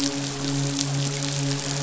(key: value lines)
label: biophony, midshipman
recorder: SoundTrap 500